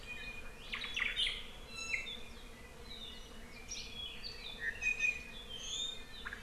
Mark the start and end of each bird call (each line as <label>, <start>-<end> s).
Iiwi (Drepanis coccinea), 0.0-0.7 s
Omao (Myadestes obscurus), 0.7-1.2 s
Iiwi (Drepanis coccinea), 1.7-2.2 s
Iiwi (Drepanis coccinea), 4.8-5.4 s